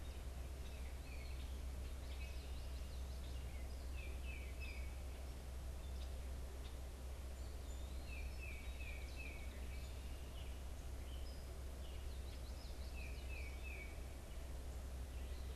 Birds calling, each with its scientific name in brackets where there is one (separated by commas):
Tufted Titmouse (Baeolophus bicolor), Gray Catbird (Dumetella carolinensis), Common Yellowthroat (Geothlypis trichas)